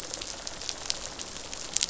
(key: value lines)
label: biophony, rattle response
recorder: SoundTrap 500